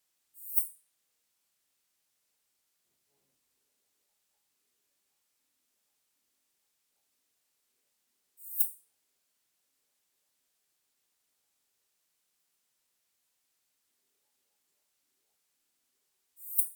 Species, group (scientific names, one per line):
Poecilimon pseudornatus
Orthoptera